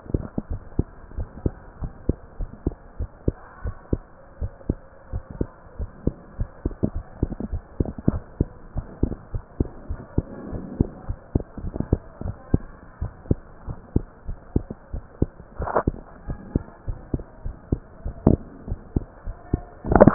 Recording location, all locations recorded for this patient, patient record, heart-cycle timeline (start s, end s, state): tricuspid valve (TV)
aortic valve (AV)+pulmonary valve (PV)+tricuspid valve (TV)+mitral valve (MV)
#Age: Child
#Sex: Male
#Height: 131.0 cm
#Weight: 25.9 kg
#Pregnancy status: False
#Murmur: Absent
#Murmur locations: nan
#Most audible location: nan
#Systolic murmur timing: nan
#Systolic murmur shape: nan
#Systolic murmur grading: nan
#Systolic murmur pitch: nan
#Systolic murmur quality: nan
#Diastolic murmur timing: nan
#Diastolic murmur shape: nan
#Diastolic murmur grading: nan
#Diastolic murmur pitch: nan
#Diastolic murmur quality: nan
#Outcome: Normal
#Campaign: 2015 screening campaign
0.00	0.89	unannotated
0.89	1.16	diastole
1.16	1.26	S1
1.26	1.43	systole
1.43	1.51	S2
1.51	1.81	diastole
1.81	1.88	S1
1.88	2.08	systole
2.08	2.13	S2
2.13	2.39	diastole
2.39	2.45	S1
2.45	2.66	systole
2.66	2.71	S2
2.71	3.00	diastole
3.00	3.06	S1
3.06	3.26	systole
3.26	3.33	S2
3.33	3.64	diastole
3.64	3.72	S1
3.72	3.91	systole
3.91	3.99	S2
3.99	4.40	diastole
4.40	4.48	S1
4.48	4.69	systole
4.69	4.74	S2
4.74	5.12	diastole
5.12	5.21	S1
5.21	5.38	systole
5.38	5.47	S2
5.47	5.79	diastole
5.79	5.86	S1
5.86	6.05	systole
6.05	6.12	S2
6.12	6.32	diastole
6.32	20.14	unannotated